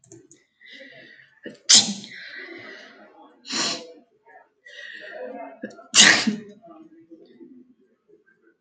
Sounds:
Sneeze